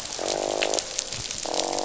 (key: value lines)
label: biophony, croak
recorder: SoundTrap 500